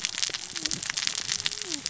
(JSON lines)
{"label": "biophony, cascading saw", "recorder": "SoundTrap 600 or HydroMoth"}